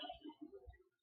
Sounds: Sigh